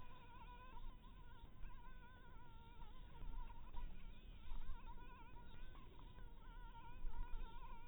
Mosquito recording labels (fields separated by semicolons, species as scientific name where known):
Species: Anopheles harrisoni; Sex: female; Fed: blood-fed; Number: one; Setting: cup